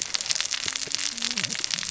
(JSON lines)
{"label": "biophony, cascading saw", "recorder": "SoundTrap 600 or HydroMoth"}